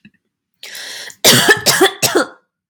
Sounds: Cough